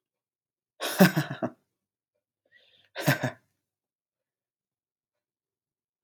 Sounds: Laughter